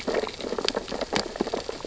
{"label": "biophony, sea urchins (Echinidae)", "recorder": "SoundTrap 600 or HydroMoth"}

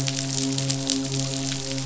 {"label": "biophony, midshipman", "recorder": "SoundTrap 500"}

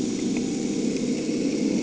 {"label": "anthrophony, boat engine", "recorder": "HydroMoth"}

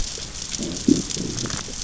{"label": "biophony, growl", "recorder": "SoundTrap 600 or HydroMoth"}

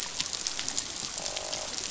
{"label": "biophony, croak", "recorder": "SoundTrap 500"}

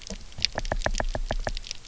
{"label": "biophony, knock", "recorder": "SoundTrap 300"}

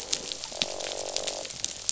{"label": "biophony, croak", "recorder": "SoundTrap 500"}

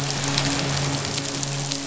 {"label": "biophony, midshipman", "recorder": "SoundTrap 500"}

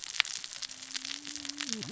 {"label": "biophony, cascading saw", "recorder": "SoundTrap 600 or HydroMoth"}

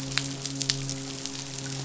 {"label": "biophony, midshipman", "recorder": "SoundTrap 500"}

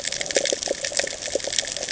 {"label": "ambient", "recorder": "HydroMoth"}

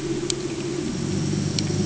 {"label": "anthrophony, boat engine", "recorder": "HydroMoth"}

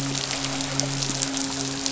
{"label": "biophony, midshipman", "recorder": "SoundTrap 500"}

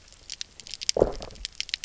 {"label": "biophony, low growl", "recorder": "SoundTrap 300"}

